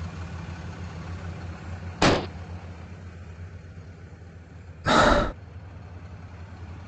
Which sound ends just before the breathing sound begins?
explosion